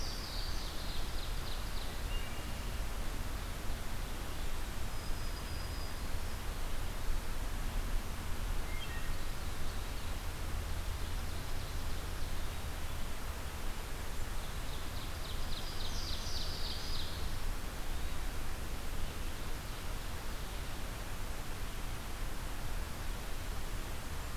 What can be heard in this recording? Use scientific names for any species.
Parkesia motacilla, Seiurus aurocapilla, Hylocichla mustelina, Setophaga virens